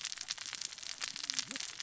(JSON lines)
{"label": "biophony, cascading saw", "recorder": "SoundTrap 600 or HydroMoth"}